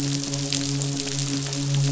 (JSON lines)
{"label": "biophony, midshipman", "recorder": "SoundTrap 500"}